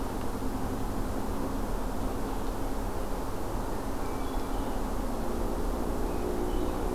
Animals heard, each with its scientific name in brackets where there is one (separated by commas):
Red-eyed Vireo (Vireo olivaceus), Hermit Thrush (Catharus guttatus)